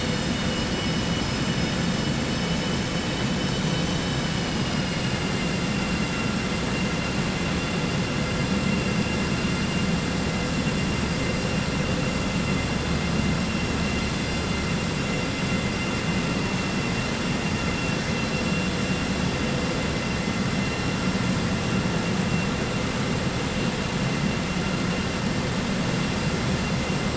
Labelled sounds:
2.3	3.0	vessel noise, 4.5 to 6.0 kHz

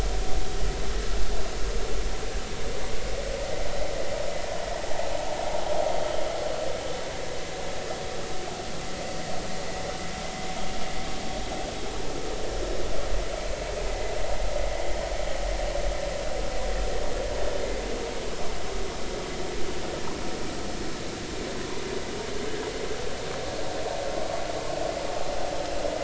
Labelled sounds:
13.9	14.1	vessel noise, 1.9 to 2.1 kHz

